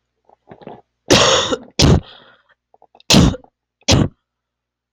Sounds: Cough